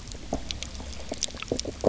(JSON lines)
{"label": "biophony, knock croak", "recorder": "SoundTrap 300"}